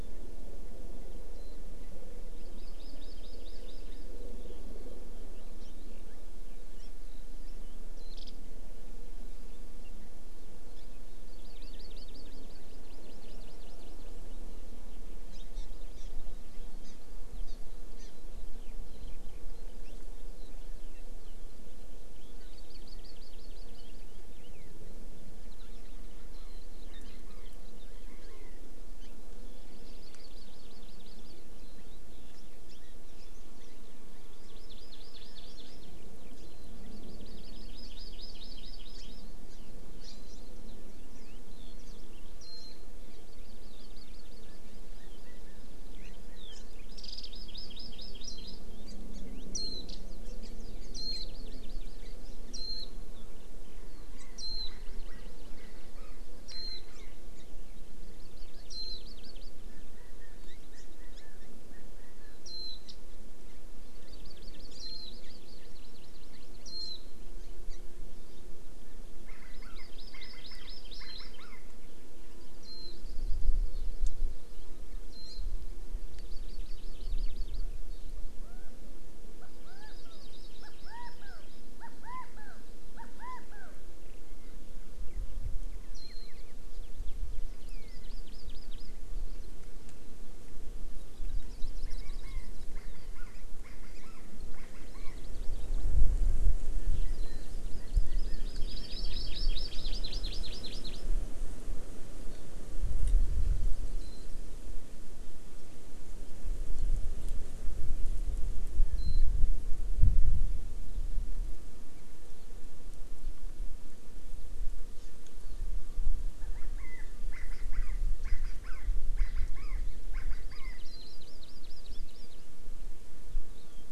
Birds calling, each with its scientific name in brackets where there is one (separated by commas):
Warbling White-eye (Zosterops japonicus), Hawaii Amakihi (Chlorodrepanis virens), Chinese Hwamei (Garrulax canorus)